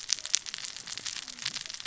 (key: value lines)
label: biophony, cascading saw
recorder: SoundTrap 600 or HydroMoth